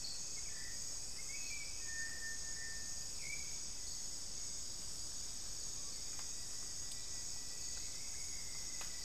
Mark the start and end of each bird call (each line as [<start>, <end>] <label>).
[0.00, 9.05] Hauxwell's Thrush (Turdus hauxwelli)
[6.40, 9.05] Rufous-fronted Antthrush (Formicarius rufifrons)